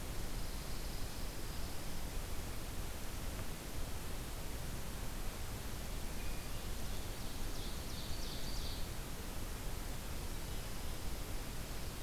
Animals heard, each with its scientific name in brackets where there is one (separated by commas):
Pine Warbler (Setophaga pinus), Ovenbird (Seiurus aurocapilla)